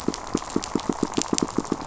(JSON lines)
{"label": "biophony, pulse", "recorder": "SoundTrap 500"}